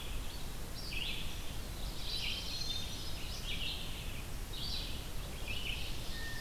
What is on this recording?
Red-eyed Vireo, Black-throated Blue Warbler, Hermit Thrush, Ovenbird